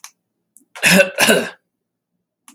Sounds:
Cough